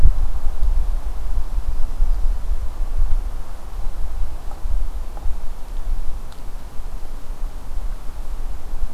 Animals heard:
Yellow-rumped Warbler (Setophaga coronata)

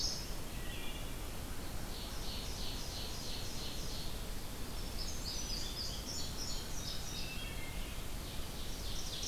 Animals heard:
Red-eyed Vireo (Vireo olivaceus), Indigo Bunting (Passerina cyanea), Ovenbird (Seiurus aurocapilla), Wood Thrush (Hylocichla mustelina)

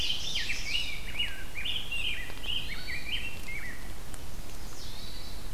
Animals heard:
Chestnut-sided Warbler (Setophaga pensylvanica), Rose-breasted Grosbeak (Pheucticus ludovicianus), Red-eyed Vireo (Vireo olivaceus), Hermit Thrush (Catharus guttatus), Ovenbird (Seiurus aurocapilla)

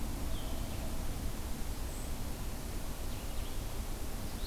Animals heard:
Blue-headed Vireo (Vireo solitarius)

